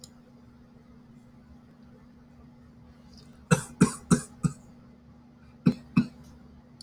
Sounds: Cough